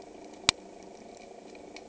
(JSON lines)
{"label": "anthrophony, boat engine", "recorder": "HydroMoth"}